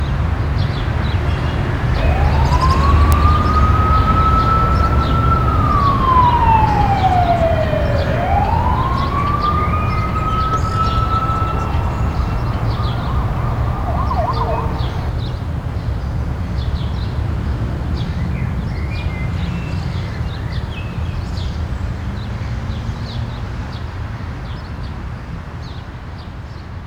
Is this deep in the rainforest?
no